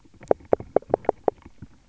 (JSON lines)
{"label": "biophony, knock", "recorder": "SoundTrap 300"}